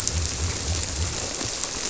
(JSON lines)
{"label": "biophony", "recorder": "SoundTrap 300"}